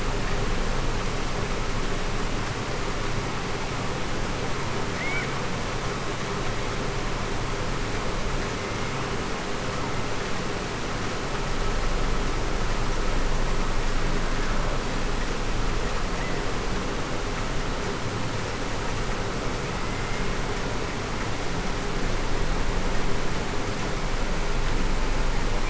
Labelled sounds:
19.8	20.2	killer whale, Bigg's (transient), 2.0 to 2.2 kHz

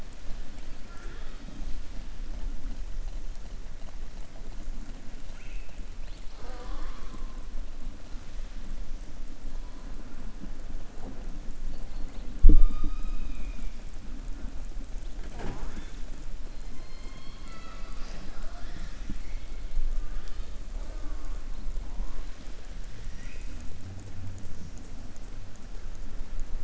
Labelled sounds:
5.2	5.8	killer whale, southern resident, 1.4 to 3.7 kHz

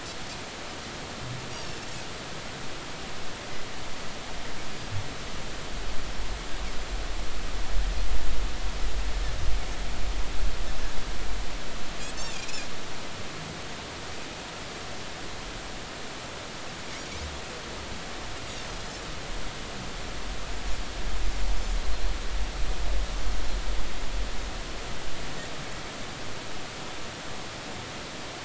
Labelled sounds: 1.5	1.8	Pacific white-sided dolphin, 5.2 to 5.8 kHz
12.3	12.7	Pacific white-sided dolphin, 2.4 to 2.7 kHz

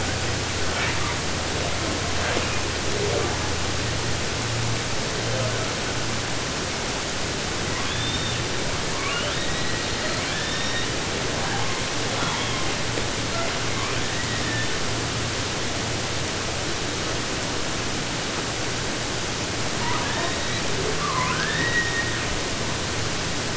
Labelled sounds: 0.6	1.2	killer whale, 0.27 to 5.7 kHz
2.1	2.6	killer whale, 0.22 to 5.3 kHz
7.7	8.4	killer whale, southern resident, 0.50 to 7.7 kHz
8.9	11.0	killer whale, southern resident, 0.29 to 8.0 kHz
11.3	12.8	killer whale, 0.25 to 3.7 kHz
12.9	13.7	killer whale, southern resident, J pod, call S42, 0.31 to 4.6 kHz
13.7	15.0	killer whale, 0.55 to 4.2 kHz
19.7	20.8	killer whale, 0.10 to 4.6 kHz
21.0	22.5	killer whale, southern resident, 0.50 to 4.4 kHz

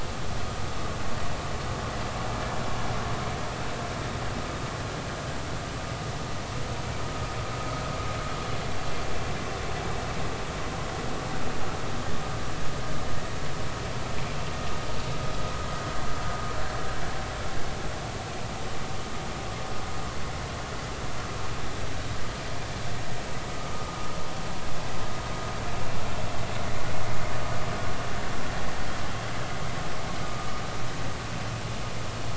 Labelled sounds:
30.2	30.6	vessel noise, 1.1 to 1.3 kHz

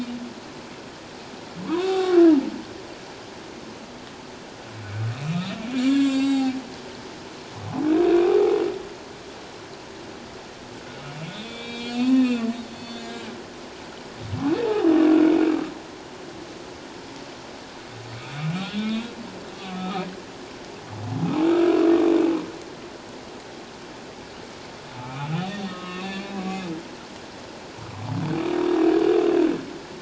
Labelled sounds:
1.7	2.2	humpback whale, 0.78 to 3.8 kHz
5.1	5.5	humpback whale, 2.4 to 2.7 kHz
5.8	6.5	humpback whale, 0.78 to 7.7 kHz
8.7	9.0	humpback whale, 1.9 to 2.1 kHz
11.3	13.1	humpback whale, 1.7 to 4.6 kHz
14.6	14.9	humpback whale, 0.78 to 0.91 kHz
15.7	16.0	humpback whale, 1.9 to 2.2 kHz
18.6	20.1	humpback whale, 1.1 to 3.8 kHz
25.0	26.3	humpback whale, 1.0 to 4.5 kHz

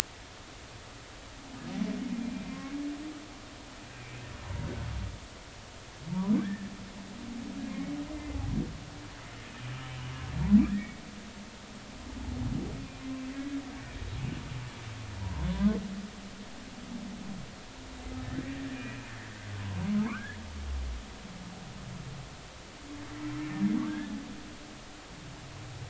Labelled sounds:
2.1	2.5	humpback whale, 2.3 to 2.5 kHz
3.9	4.7	humpback whale, 0.80 to 2.5 kHz
6.1	6.7	humpback whale, 0.86 to 1.9 kHz
7.7	8.0	humpback whale, 2.1 to 2.3 kHz
10.7	10.9	humpback whale, 1.6 to 2.0 kHz
15.2	15.8	humpback whale, 0.86 to 1.1 kHz
18.2	19.0	humpback whale, 1.7 to 2.6 kHz
20.1	20.4	humpback whale, 0.99 to 2.0 kHz
23.9	24.1	humpback whale, 1.5 to 1.8 kHz

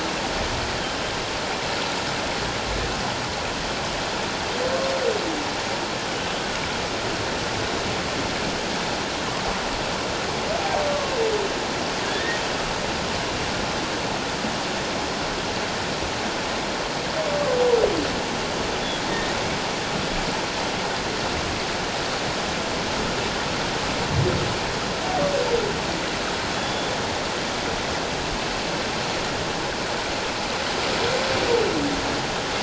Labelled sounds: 12.0	12.4	humpback whale, 1.5 to 1.9 kHz
26.5	26.9	humpback whale, 3.3 to 3.5 kHz

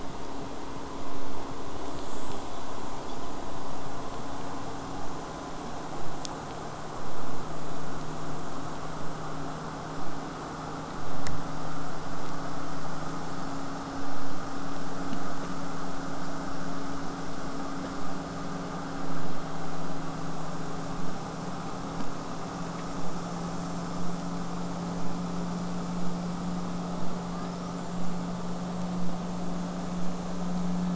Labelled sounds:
1.7	2.7	killer whale, southern resident, J pod, buzz, 6.2 to 8.0 kHz
21.0	26.0	vessel noise, 0 to 8.0 kHz
27.3	28.3	killer whale, southern resident, J pod, 1.0 to 8.0 kHz

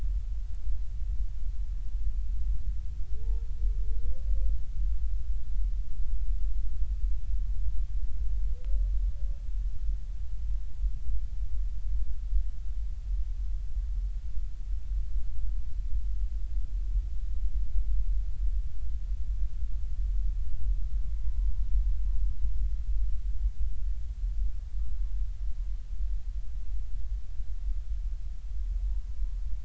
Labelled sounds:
21.2	21.5	humpback whale, 0.93 to 1.1 kHz

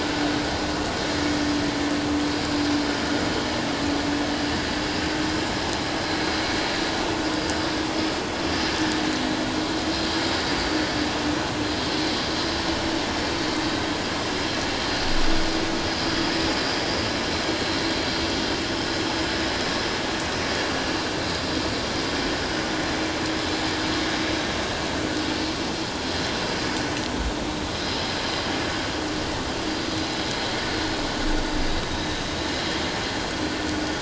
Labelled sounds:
27.7	28.0	vessel noise, 4.8 to 5.2 kHz

